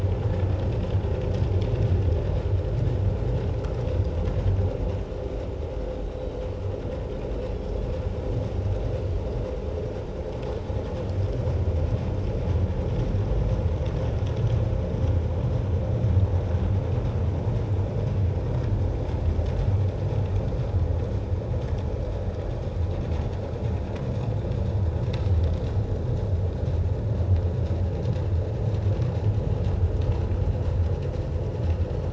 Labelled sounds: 2.5	2.8	Pacific white-sided dolphin, 5.2 to 5.5 kHz
7.5	7.8	Pacific white-sided dolphin, 5.3 to 5.5 kHz

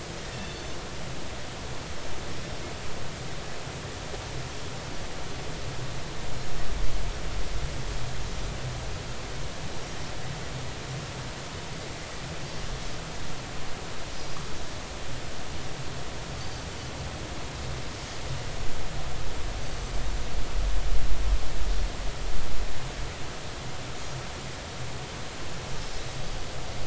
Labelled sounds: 0.2	0.7	Pacific white-sided dolphin, 1.7 to 3.6 kHz

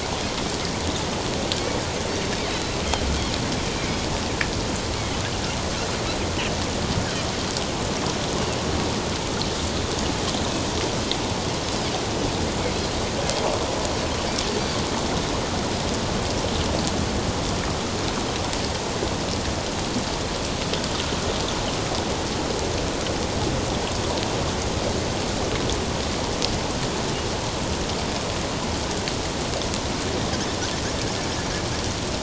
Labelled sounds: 2.5	2.8	Pacific white-sided dolphin, 3.8 to 4.1 kHz

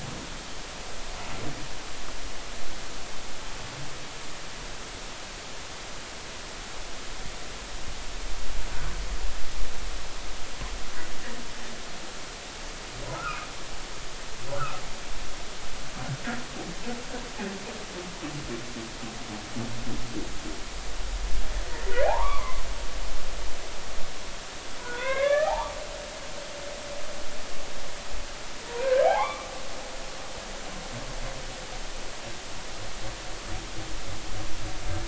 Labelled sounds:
13.2	13.5	humpback whale, 1.1 to 1.6 kHz
14.6	14.8	humpback whale, 1.2 to 1.5 kHz
22.0	22.6	humpback whale, 0.80 to 2.4 kHz
24.8	25.8	humpback whale, 0.80 to 2.4 kHz
28.7	29.5	humpback whale, 0.80 to 3.3 kHz

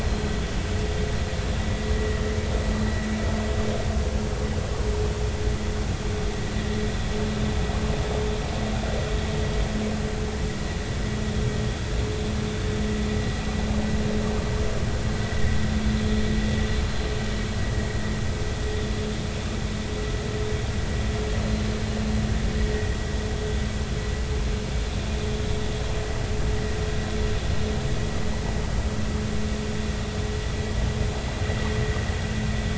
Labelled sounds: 0.0	0.2	vessel noise, 4.1 to 4.2 kHz
1.9	2.3	vessel noise, 1.8 to 2.0 kHz
22.7	23.0	vessel noise, 1.8 to 2.0 kHz

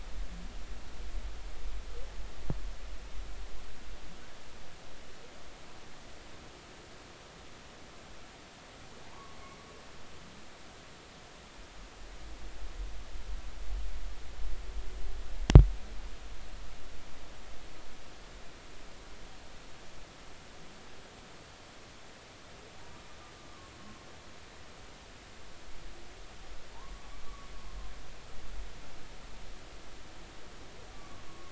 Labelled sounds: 9.1	9.4	humpback whale, 0.86 to 1.2 kHz
27.2	27.5	humpback whale, 1.1 to 1.2 kHz
30.9	31.5	humpback whale, 1.0 to 1.2 kHz

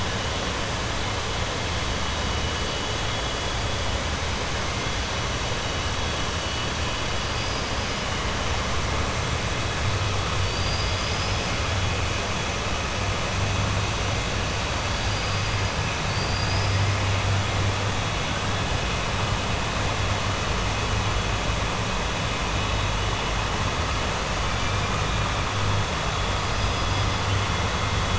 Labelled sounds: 16.0	16.8	killer whale, 4.5 to 5.3 kHz

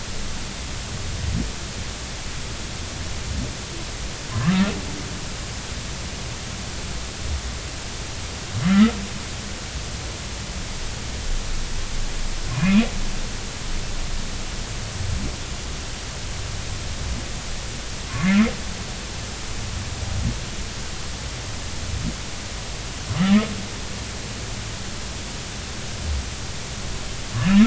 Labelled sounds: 4.3	4.7	humpback whale, 0.96 to 1.4 kHz
12.5	12.9	humpback whale, 2.3 to 2.6 kHz
27.4	27.6	humpback whale, 1.7 to 1.9 kHz

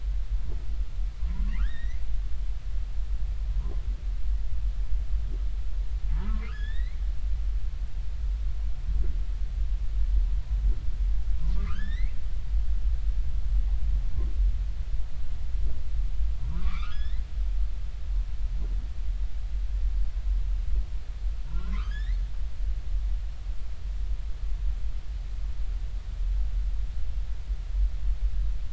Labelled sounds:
1.3	2.0	humpback whale, 0.90 to 4.1 kHz
6.1	7.0	humpback whale, 0.86 to 5.4 kHz
11.5	12.2	humpback whale, 0.99 to 4.4 kHz
16.5	17.3	humpback whale, 0.90 to 4.1 kHz
21.4	22.2	humpback whale, 0.90 to 4.5 kHz

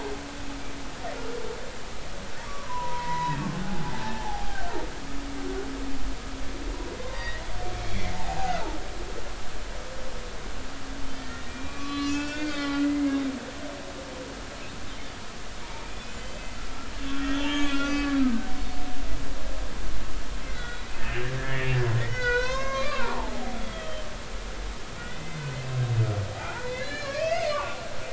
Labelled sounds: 3.0	4.6	humpback whale, 0.80 to 2.2 kHz
7.0	7.4	humpback whale, 0.86 to 3.7 kHz
8.1	8.7	humpback whale, 0.80 to 1.7 kHz
11.0	13.8	humpback whale, 1.1 to 6.7 kHz
15.6	16.5	humpback whale, 0.86 to 7.3 kHz
17.0	18.5	humpback whale, 0.99 to 4.6 kHz
20.4	21.7	humpback whale, 1.4 to 3.5 kHz
22.0	24.1	humpback whale, 0.80 to 6.5 kHz
25.0	25.4	humpback whale, 1.8 to 2.1 kHz
26.4	27.9	humpback whale, 0.80 to 4.2 kHz

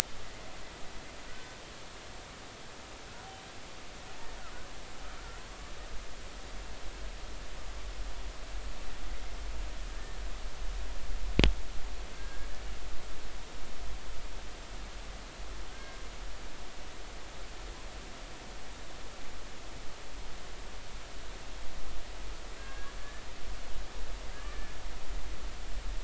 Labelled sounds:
12.1	12.5	humpback whale, 1.5 to 1.7 kHz
15.7	16.0	humpback whale, 1.5 to 1.7 kHz
22.6	22.9	humpback whale, 1.5 to 2.8 kHz
24.3	24.7	humpback whale, 1.5 to 1.9 kHz

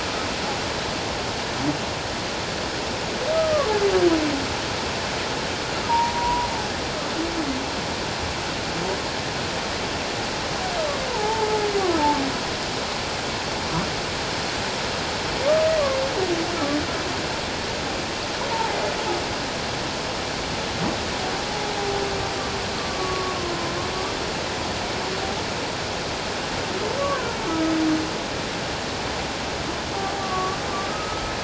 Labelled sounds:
3.3	3.7	humpback whale, 1.0 to 1.3 kHz
5.9	6.5	humpback whale, 0.88 to 1.0 kHz
11.1	11.6	humpback whale, 0.78 to 1.1 kHz
18.5	18.8	humpback whale, 0.78 to 1.0 kHz
22.8	23.6	humpback whale, 1.0 to 1.2 kHz
27.0	27.7	humpback whale, 0.97 to 1.6 kHz
30.2	31.3	humpback whale, 1.1 to 1.4 kHz

